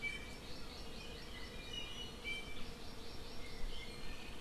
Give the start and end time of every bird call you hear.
0.0s-0.4s: Iiwi (Drepanis coccinea)
0.2s-1.9s: Hawaii Amakihi (Chlorodrepanis virens)
1.5s-2.7s: Iiwi (Drepanis coccinea)
2.6s-3.9s: Hawaii Amakihi (Chlorodrepanis virens)
3.8s-4.4s: Iiwi (Drepanis coccinea)

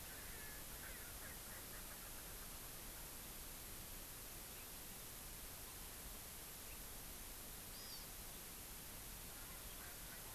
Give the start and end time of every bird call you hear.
0.0s-2.8s: Erckel's Francolin (Pternistis erckelii)
7.6s-8.1s: Hawaii Amakihi (Chlorodrepanis virens)

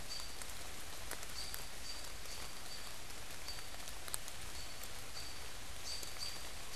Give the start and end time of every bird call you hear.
0.0s-6.8s: American Robin (Turdus migratorius)

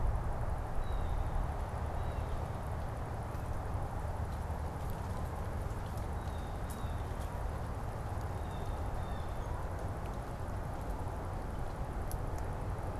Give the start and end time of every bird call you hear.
0.0s-2.5s: Blue Jay (Cyanocitta cristata)
5.9s-9.6s: Blue Jay (Cyanocitta cristata)

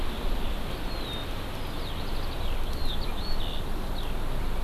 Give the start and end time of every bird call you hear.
0.0s-4.1s: Eurasian Skylark (Alauda arvensis)

